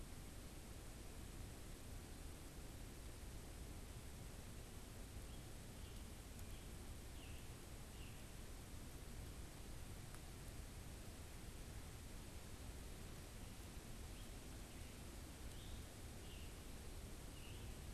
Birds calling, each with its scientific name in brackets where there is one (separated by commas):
Scarlet Tanager (Piranga olivacea)